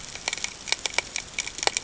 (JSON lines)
{"label": "ambient", "recorder": "HydroMoth"}